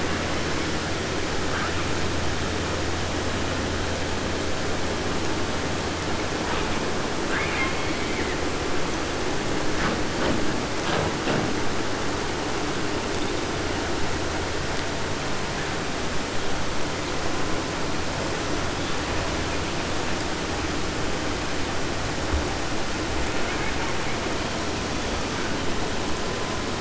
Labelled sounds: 1.5	1.9	killer whale, 0.39 to 2.6 kHz
6.5	6.8	killer whale, 0.39 to 3.9 kHz
7.2	8.8	killer whale, 0.50 to 5.3 kHz
23.2	24.2	killer whale, 0.41 to 2.8 kHz

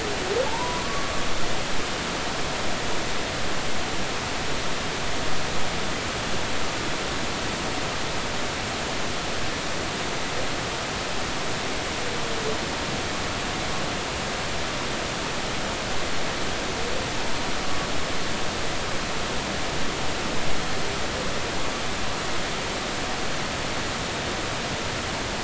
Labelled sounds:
0.5	1.1	humpback whale, 0.80 to 1.2 kHz

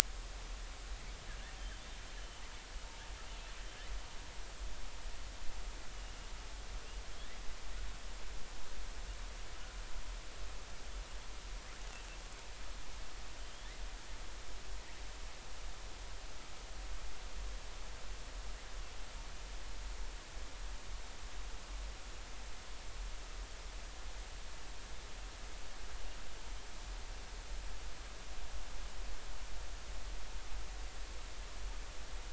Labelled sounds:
1.6	2.4	killer whale, southern resident, J clan, L pod, call S02iii, 2.9 to 3.3 kHz
13.4	13.7	killer whale, southern resident, J clan, L pod, call S19, 3.0 to 3.6 kHz

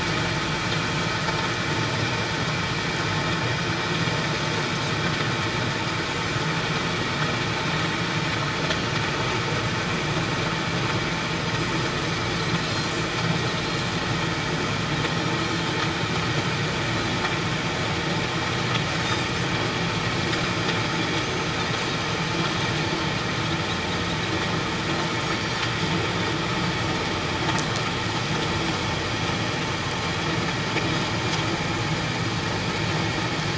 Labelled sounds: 21.2	21.5	Pacific white-sided dolphin, 5.9 to 6.4 kHz
25.3	25.6	Pacific white-sided dolphin, 4.4 to 4.6 kHz

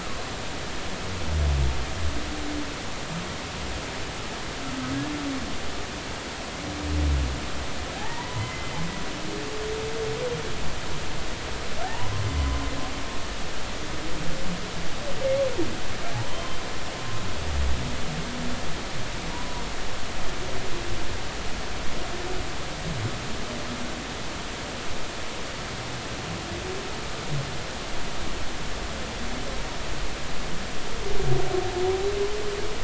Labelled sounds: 7.9	8.7	humpback whale, 0.80 to 3.1 kHz
11.8	12.1	humpback whale, 0.80 to 1.1 kHz
16.1	16.4	humpback whale, 0.80 to 1.1 kHz
19.3	19.6	humpback whale, 0.93 to 1.0 kHz

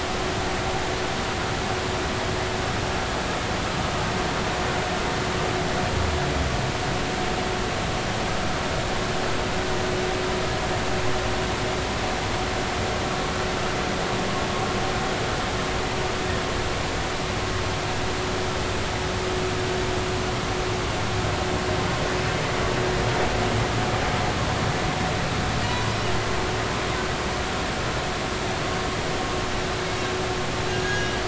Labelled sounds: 30.8	31.1	humpback whale, 1.4 to 1.7 kHz

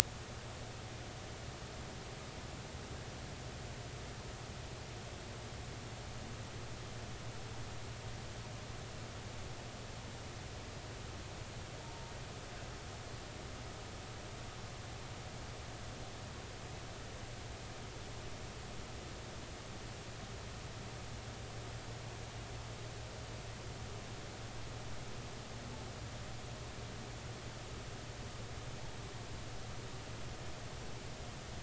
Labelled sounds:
11.8	12.1	humpback whale, 0.86 to 0.96 kHz

